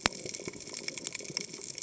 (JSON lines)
{"label": "biophony, cascading saw", "recorder": "HydroMoth"}